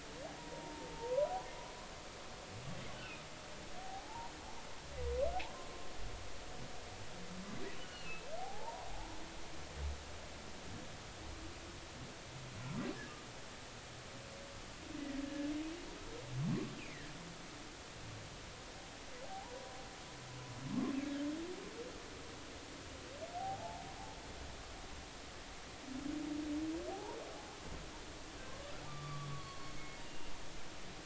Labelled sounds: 0.4	1.3	humpback whale, 0.86 to 1.1 kHz
3.8	4.3	humpback whale, 0.80 to 1.0 kHz
7.8	9.1	humpback whale, 0.80 to 3.0 kHz
15.2	15.5	humpback whale, 1.7 to 1.8 kHz
16.8	17.1	humpback whale, 1.7 to 2.8 kHz
19.2	19.5	humpback whale, 0.80 to 1.0 kHz
20.7	20.9	humpback whale, 1.0 to 1.2 kHz
23.4	23.8	humpback whale, 0.80 to 0.93 kHz
26.9	27.2	humpback whale, 0.80 to 1.1 kHz
28.8	30.3	humpback whale, 0.96 to 4.7 kHz

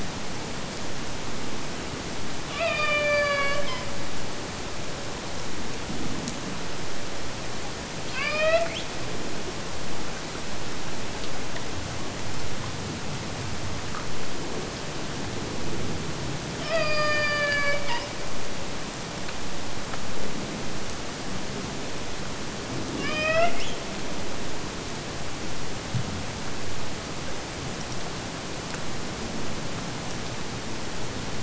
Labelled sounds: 2.4	4.0	killer whale, Bigg's (transient), AT1 transient, 0.46 to 5.5 kHz
8.0	8.9	killer whale, Bigg's (transient), AT1 transient, 0.51 to 5.7 kHz
16.5	18.2	killer whale, Bigg's (transient), AT1 transient, 0.49 to 7.0 kHz
23.0	23.8	killer whale, Bigg's (transient), AT1 transient, 0.49 to 7.1 kHz

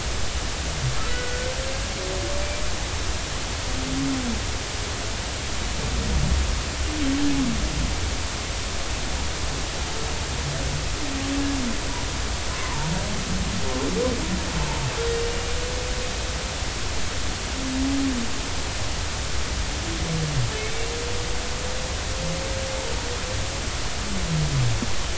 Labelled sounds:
1.1	1.5	humpback whale, 1.4 to 2.0 kHz
12.5	12.9	humpback whale, 0.86 to 1.1 kHz

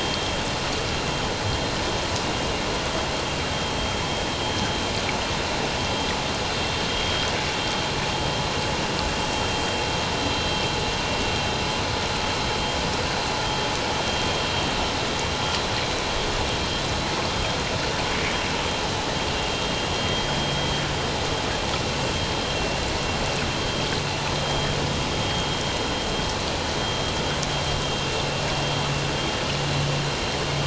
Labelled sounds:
10.2	10.5	vessel noise, 3.9 to 4.1 kHz

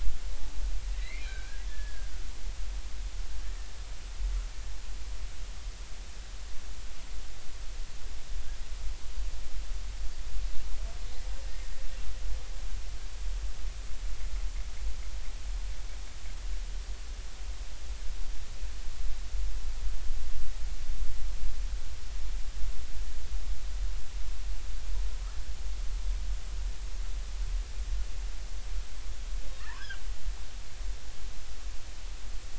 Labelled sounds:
1.0	2.1	killer whale, Bigg's (transient), 1.5 to 4.2 kHz
3.4	3.7	killer whale, Bigg's (transient), 1.6 to 1.9 kHz
29.8	30.0	killer whale, Bigg's (transient), 1.3 to 1.8 kHz

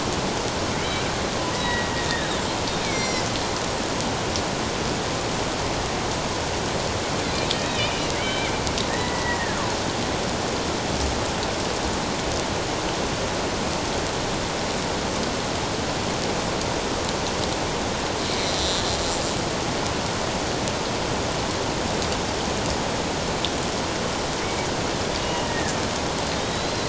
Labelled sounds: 1.5	2.4	killer whale, Bigg's (transient), 1.8 to 4.0 kHz
2.8	3.3	killer whale, Bigg's (transient), 2.0 to 6.0 kHz
7.6	8.5	killer whale, Bigg's (transient), 2.0 to 3.9 kHz
8.9	9.6	killer whale, Bigg's (transient), 1.6 to 2.0 kHz
18.6	18.8	killer whale, Bigg's (transient), 3.4 to 4.0 kHz
25.4	25.8	killer whale, Bigg's (transient), 1.6 to 1.9 kHz
26.3	26.8	killer whale, Bigg's (transient), 3.6 to 4.2 kHz

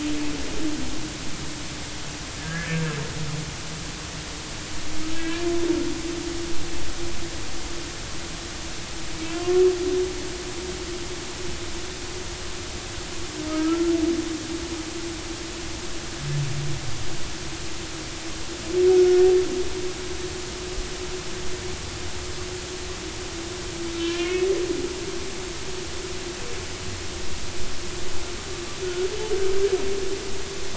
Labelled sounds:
2.7	3.0	humpback whale, 1.5 to 1.7 kHz
3.4	3.8	humpback whale, 1.5 to 1.9 kHz
5.1	5.5	humpback whale, 1.6 to 2.5 kHz
9.3	9.6	humpback whale, 1.0 to 3.2 kHz
13.5	13.9	humpback whale, 1.2 to 1.4 kHz
19.0	19.2	humpback whale, 1.4 to 1.5 kHz
24.0	24.5	humpback whale, 2.1 to 3.0 kHz

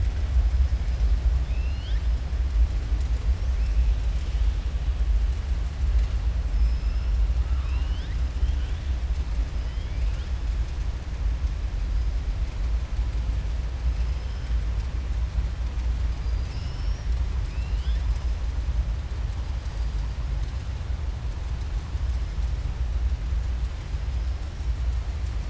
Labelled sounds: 6.5	7.1	killer whale, southern resident, 5.0 to 5.5 kHz
7.4	8.2	killer whale, southern resident, 0.98 to 5.2 kHz
14.0	14.5	killer whale, southern resident, 4.3 to 5.3 kHz
16.1	17.1	killer whale, southern resident, 2.6 to 6.2 kHz

